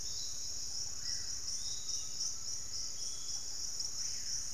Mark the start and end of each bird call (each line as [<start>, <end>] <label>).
[0.00, 4.54] Piratic Flycatcher (Legatus leucophaius)
[0.00, 4.54] unidentified bird
[0.57, 4.54] Screaming Piha (Lipaugus vociferans)
[1.67, 3.47] Undulated Tinamou (Crypturellus undulatus)